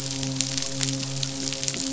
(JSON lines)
{"label": "biophony, midshipman", "recorder": "SoundTrap 500"}